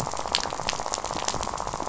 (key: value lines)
label: biophony, rattle
recorder: SoundTrap 500